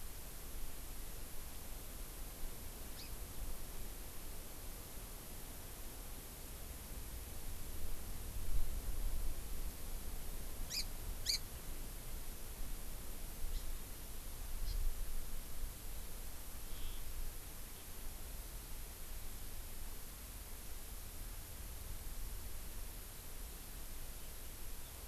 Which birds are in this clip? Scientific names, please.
Chlorodrepanis virens